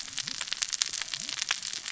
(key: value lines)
label: biophony, cascading saw
recorder: SoundTrap 600 or HydroMoth